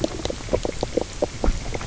{"label": "biophony, knock croak", "recorder": "SoundTrap 300"}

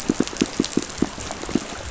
{"label": "biophony, pulse", "recorder": "SoundTrap 500"}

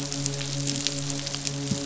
{"label": "biophony, midshipman", "recorder": "SoundTrap 500"}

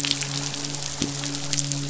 {"label": "biophony, midshipman", "recorder": "SoundTrap 500"}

